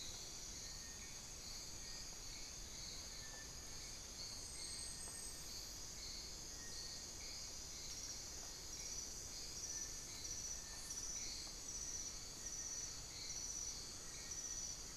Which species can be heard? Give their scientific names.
Crypturellus soui